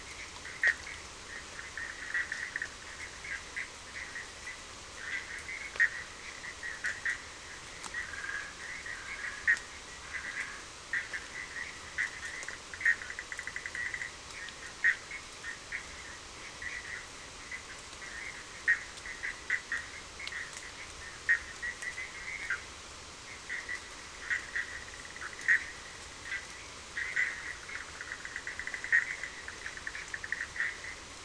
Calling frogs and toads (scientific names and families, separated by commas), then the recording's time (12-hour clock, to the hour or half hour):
Boana bischoffi (Hylidae)
10:30pm